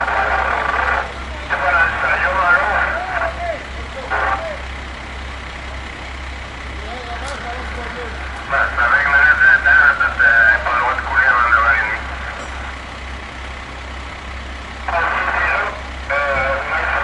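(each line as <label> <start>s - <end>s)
An engine is running. 0.0s - 1.6s
A man is speaking through a megaphone. 1.5s - 2.8s
Men yelling in the background. 2.7s - 3.6s
An engine is running in the background. 3.5s - 17.0s
A megaphone emits a sound without words. 4.0s - 4.4s
Men yelling in the background. 7.1s - 8.0s
A man is speaking through a megaphone. 8.5s - 12.1s
A man is speaking through a megaphone. 14.9s - 17.0s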